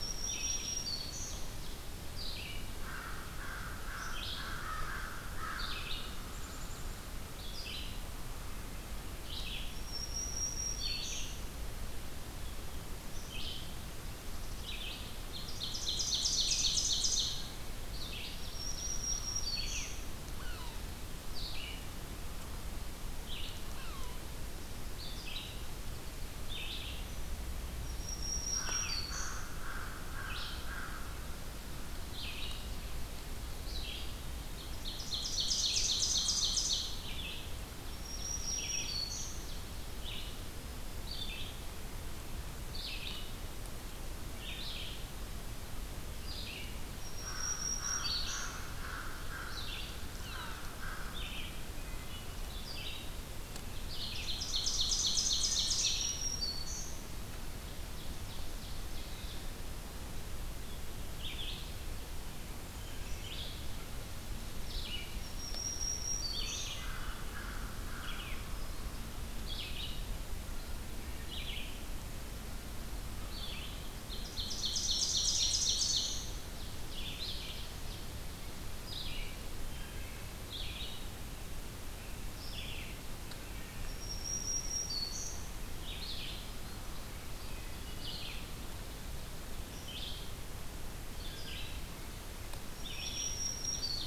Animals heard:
Wood Thrush (Hylocichla mustelina)
American Crow (Corvus brachyrhynchos)
Ovenbird (Seiurus aurocapilla)
Black-capped Chickadee (Poecile atricapillus)
Yellow-bellied Sapsucker (Sphyrapicus varius)
Red-eyed Vireo (Vireo olivaceus)
Black-throated Green Warbler (Setophaga virens)

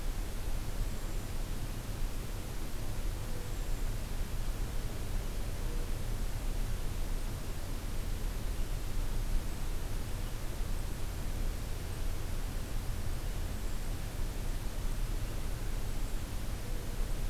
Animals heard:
Hermit Thrush (Catharus guttatus)

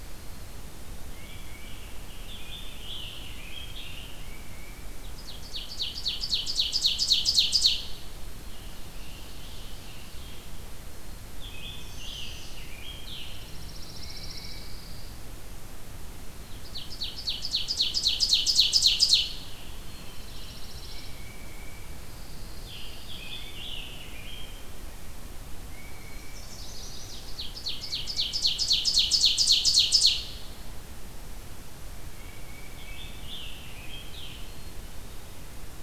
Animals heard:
Black-capped Chickadee (Poecile atricapillus)
Scarlet Tanager (Piranga olivacea)
Tufted Titmouse (Baeolophus bicolor)
Chestnut-sided Warbler (Setophaga pensylvanica)
Ovenbird (Seiurus aurocapilla)
Pine Warbler (Setophaga pinus)

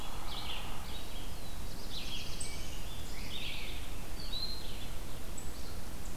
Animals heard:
Red-eyed Vireo (Vireo olivaceus)
unidentified call
Black-throated Blue Warbler (Setophaga caerulescens)

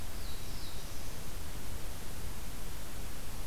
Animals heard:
Black-throated Blue Warbler (Setophaga caerulescens)

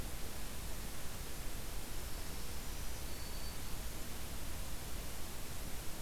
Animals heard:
Black-throated Green Warbler (Setophaga virens)

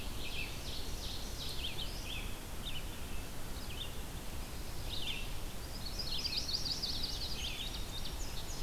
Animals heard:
Indigo Bunting (Passerina cyanea)
Red-eyed Vireo (Vireo olivaceus)
Ovenbird (Seiurus aurocapilla)
Yellow-rumped Warbler (Setophaga coronata)

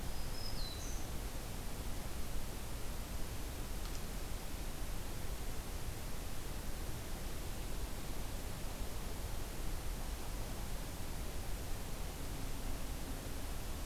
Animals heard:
Black-throated Green Warbler (Setophaga virens)

